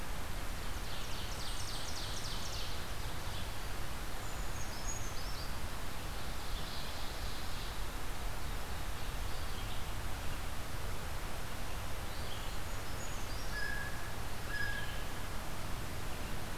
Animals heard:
Red-eyed Vireo (Vireo olivaceus), American Crow (Corvus brachyrhynchos), Ovenbird (Seiurus aurocapilla), Brown Creeper (Certhia americana)

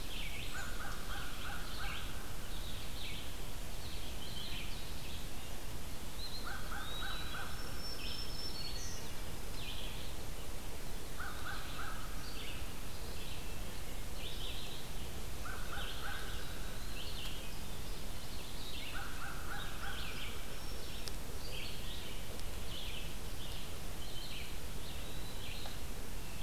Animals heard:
American Crow (Corvus brachyrhynchos), Black-throated Green Warbler (Setophaga virens), Red-eyed Vireo (Vireo olivaceus), Eastern Wood-Pewee (Contopus virens)

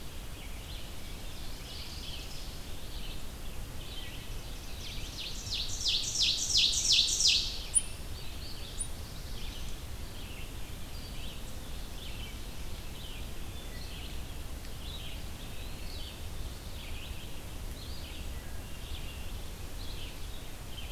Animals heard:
Black-throated Blue Warbler (Setophaga caerulescens), Wood Thrush (Hylocichla mustelina), Ovenbird (Seiurus aurocapilla), Red-eyed Vireo (Vireo olivaceus), Eastern Wood-Pewee (Contopus virens)

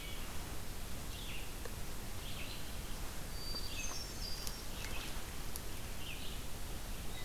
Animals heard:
Red-eyed Vireo (Vireo olivaceus), Hermit Thrush (Catharus guttatus)

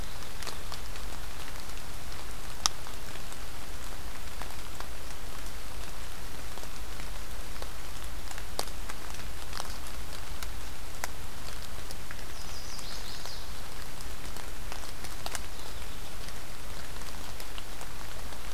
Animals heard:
Chestnut-sided Warbler (Setophaga pensylvanica)

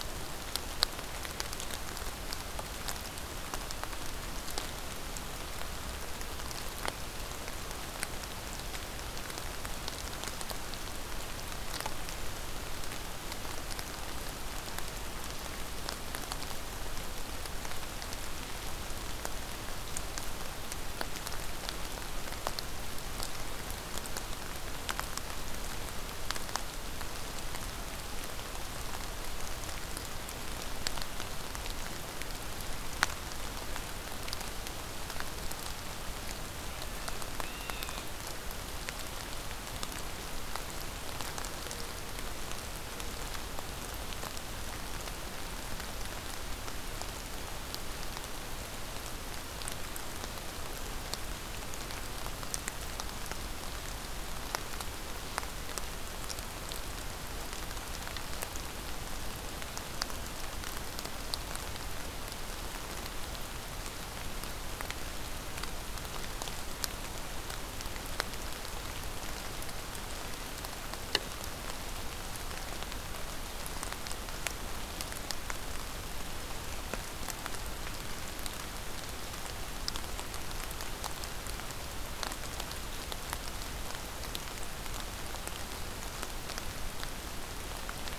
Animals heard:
Blue Jay (Cyanocitta cristata)

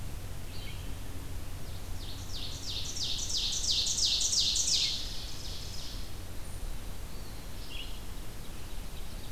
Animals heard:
Red-eyed Vireo (Vireo olivaceus), Ovenbird (Seiurus aurocapilla), Eastern Wood-Pewee (Contopus virens)

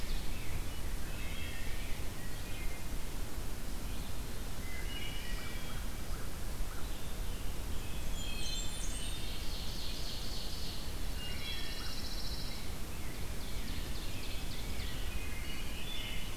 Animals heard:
Rose-breasted Grosbeak (Pheucticus ludovicianus), Pine Warbler (Setophaga pinus), Wood Thrush (Hylocichla mustelina), Ovenbird (Seiurus aurocapilla), Blackburnian Warbler (Setophaga fusca), Scarlet Tanager (Piranga olivacea), American Crow (Corvus brachyrhynchos)

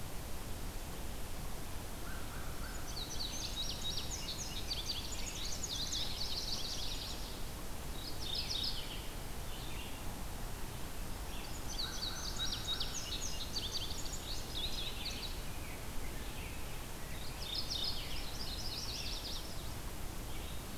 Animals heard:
Indigo Bunting (Passerina cyanea), Mourning Warbler (Geothlypis philadelphia), American Crow (Corvus brachyrhynchos), Red-eyed Vireo (Vireo olivaceus), Yellow-rumped Warbler (Setophaga coronata)

